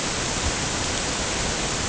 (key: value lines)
label: ambient
recorder: HydroMoth